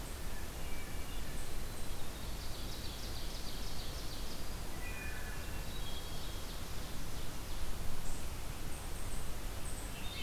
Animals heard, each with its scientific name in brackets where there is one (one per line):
Wood Thrush (Hylocichla mustelina)
Winter Wren (Troglodytes hiemalis)
Hermit Thrush (Catharus guttatus)
unidentified call
Ovenbird (Seiurus aurocapilla)